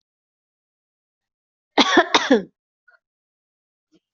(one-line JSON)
{"expert_labels": [{"quality": "ok", "cough_type": "dry", "dyspnea": false, "wheezing": false, "stridor": false, "choking": false, "congestion": false, "nothing": true, "diagnosis": "lower respiratory tract infection", "severity": "mild"}], "age": 42, "gender": "female", "respiratory_condition": false, "fever_muscle_pain": false, "status": "healthy"}